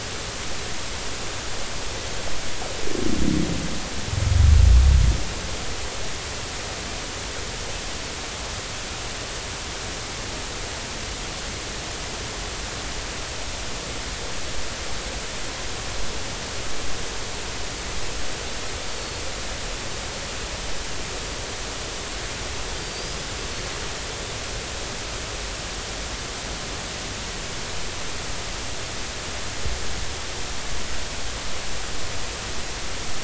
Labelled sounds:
18.9	19.2	Pacific white-sided dolphin, 4.3 to 4.6 kHz
22.7	23.3	Pacific white-sided dolphin, 4.6 to 5.1 kHz

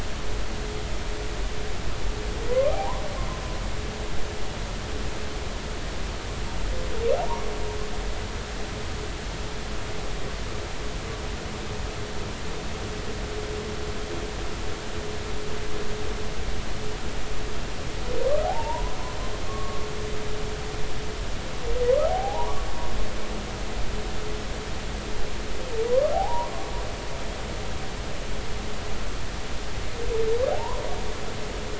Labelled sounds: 2.5	3.0	humpback whale, 0.80 to 1.3 kHz
7.1	7.5	humpback whale, 0.80 to 1.2 kHz
18.4	19.0	humpback whale, 0.80 to 1.1 kHz
19.5	19.9	humpback whale, 1.0 to 1.2 kHz
22.1	22.5	humpback whale, 0.80 to 1.0 kHz
26.1	26.5	humpback whale, 0.80 to 1.1 kHz
30.5	30.8	humpback whale, 0.80 to 1.2 kHz

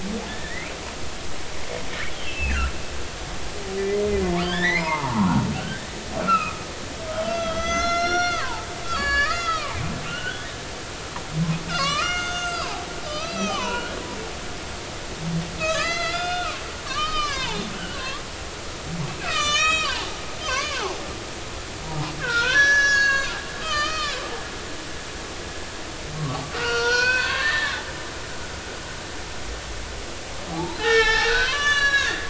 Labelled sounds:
0.3	0.7	humpback whale, 1.7 to 2.5 kHz
2.1	2.7	humpback whale, 1.2 to 3.4 kHz
3.8	5.9	humpback whale, 0.83 to 4.3 kHz
6.2	6.6	humpback whale, 1.1 to 2.8 kHz
7.2	10.5	humpback whale, 0.83 to 7.4 kHz
11.7	13.9	humpback whale, 0.80 to 7.1 kHz
15.6	18.4	humpback whale, 0.80 to 6.2 kHz
19.2	20.1	humpback whale, 0.80 to 7.6 kHz
20.4	21.0	humpback whale, 0.80 to 4.9 kHz
22.2	24.2	humpback whale, 0.90 to 7.5 kHz
26.5	27.8	humpback whale, 0.90 to 5.9 kHz
30.5	32.2	humpback whale, 0.80 to 7.6 kHz

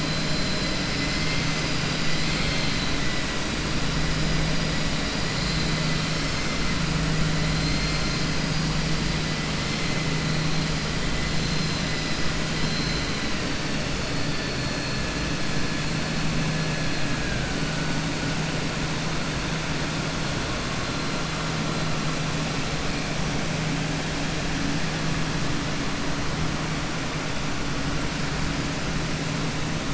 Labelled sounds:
7.5	8.2	vessel noise, 4.1 to 5.2 kHz
12.5	13.1	vessel noise, 3.1 to 6.1 kHz

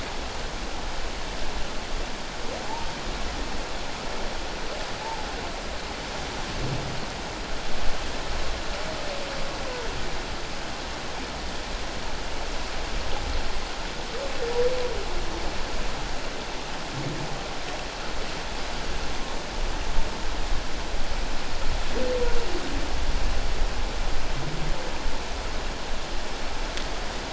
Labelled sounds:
5.0	5.3	humpback whale, 0.81 to 0.97 kHz

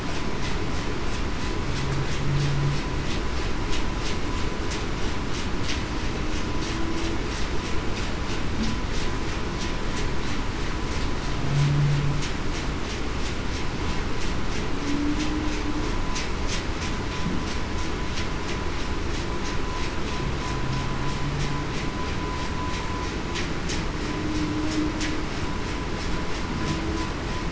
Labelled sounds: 14.8	15.2	humpback whale, 0.21 to 0.33 kHz

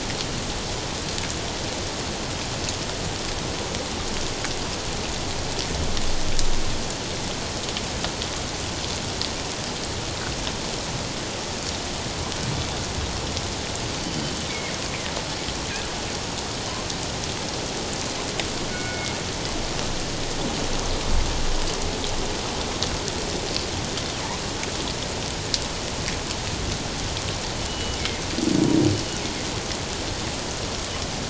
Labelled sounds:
14.0	14.2	killer whale, northern resident, G clan, 4.4 to 4.7 kHz
14.5	14.7	killer whale, northern resident, G clan, 2.0 to 2.4 kHz
18.7	19.2	killer whale, northern resident, G clan, 1.4 to 2.2 kHz
27.7	28.2	killer whale, northern resident, G clan, 1.9 to 3.0 kHz

